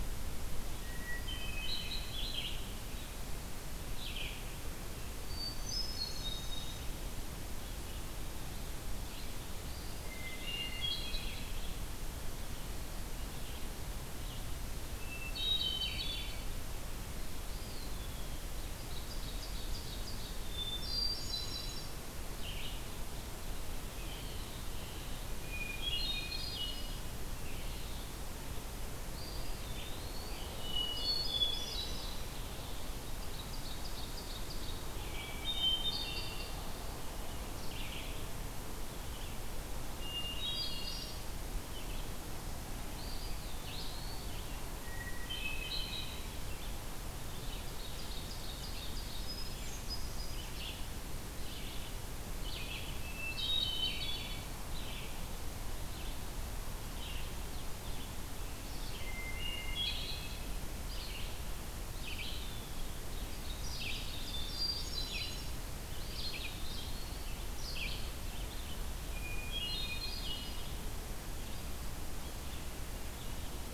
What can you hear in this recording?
Hermit Thrush, Red-eyed Vireo, Eastern Wood-Pewee, Ovenbird, Blue Jay